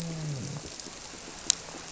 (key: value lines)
label: biophony, grouper
recorder: SoundTrap 300